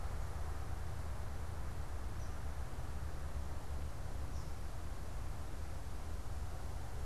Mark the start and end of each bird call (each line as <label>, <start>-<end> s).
unidentified bird, 2.0-4.6 s